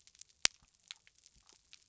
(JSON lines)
{"label": "biophony", "recorder": "SoundTrap 300"}